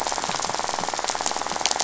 {"label": "biophony, rattle", "recorder": "SoundTrap 500"}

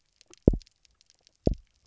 {"label": "biophony, double pulse", "recorder": "SoundTrap 300"}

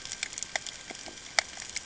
{"label": "ambient", "recorder": "HydroMoth"}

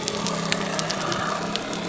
{"label": "biophony", "recorder": "SoundTrap 300"}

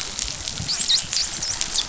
{"label": "biophony, dolphin", "recorder": "SoundTrap 500"}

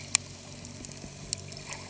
{"label": "anthrophony, boat engine", "recorder": "HydroMoth"}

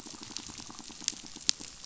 {"label": "biophony, pulse", "recorder": "SoundTrap 500"}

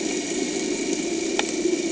{"label": "anthrophony, boat engine", "recorder": "HydroMoth"}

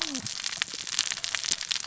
{"label": "biophony, cascading saw", "recorder": "SoundTrap 600 or HydroMoth"}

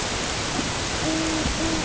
{"label": "ambient", "recorder": "HydroMoth"}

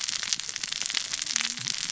{"label": "biophony, cascading saw", "recorder": "SoundTrap 600 or HydroMoth"}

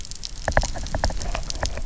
{"label": "biophony, knock", "recorder": "SoundTrap 300"}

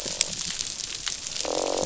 {"label": "biophony, croak", "recorder": "SoundTrap 500"}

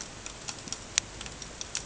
{"label": "ambient", "recorder": "HydroMoth"}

